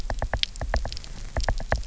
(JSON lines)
{"label": "biophony, knock", "recorder": "SoundTrap 300"}